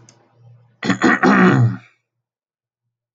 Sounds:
Throat clearing